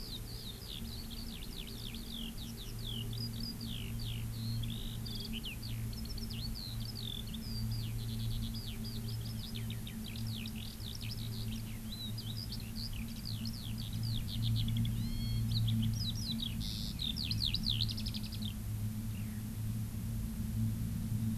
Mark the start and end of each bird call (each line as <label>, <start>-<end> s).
Eurasian Skylark (Alauda arvensis), 0.0-18.6 s
Hawaii Amakihi (Chlorodrepanis virens), 14.9-15.5 s
Eurasian Skylark (Alauda arvensis), 19.2-19.4 s